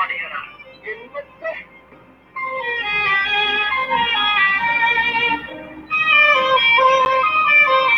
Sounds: Laughter